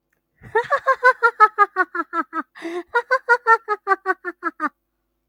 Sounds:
Laughter